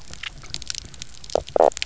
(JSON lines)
{"label": "biophony, knock croak", "recorder": "SoundTrap 300"}